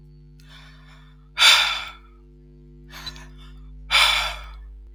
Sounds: Sigh